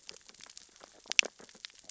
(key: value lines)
label: biophony, sea urchins (Echinidae)
recorder: SoundTrap 600 or HydroMoth